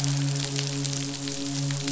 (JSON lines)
{"label": "biophony, midshipman", "recorder": "SoundTrap 500"}